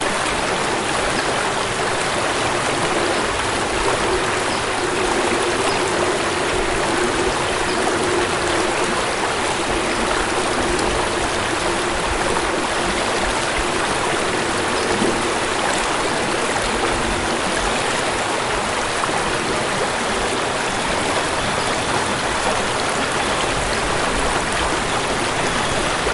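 A loud creaking sound. 0:00.0 - 0:26.1
A bird chirps repeatedly in the distance. 0:01.2 - 0:10.4
A bird chirps in the distance. 0:14.7 - 0:15.3
A bird chirps in the distance. 0:21.6 - 0:22.4
A bird chirps in the distance. 0:23.7 - 0:24.4

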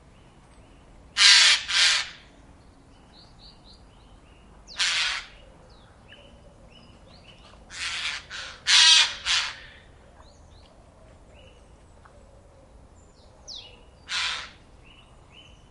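Different birds chirping quietly in the background. 0:00.0 - 0:15.7
A bird croaks loudly. 0:01.2 - 0:02.1
A bird croaks loudly. 0:04.7 - 0:05.3
Birds croak loudly multiple times. 0:07.7 - 0:09.6
A bird croaks loudly. 0:14.1 - 0:14.6

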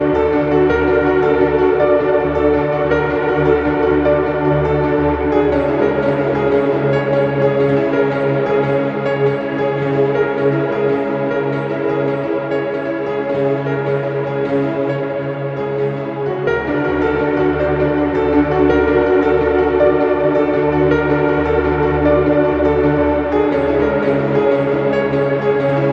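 A keyboard plays a steady, repeated rhythm. 0:00.0 - 0:25.9

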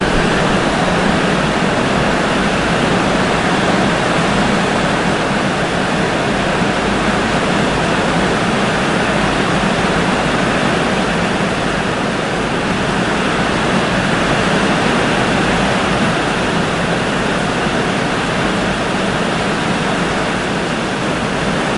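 Waves crashing onto the shore. 0:00.0 - 0:21.7

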